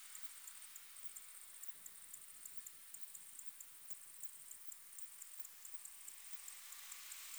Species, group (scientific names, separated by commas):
Tessellana orina, Orthoptera